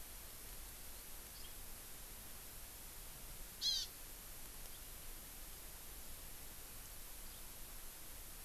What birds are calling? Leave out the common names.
Chlorodrepanis virens